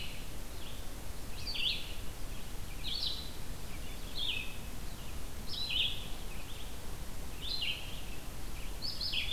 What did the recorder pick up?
Red-eyed Vireo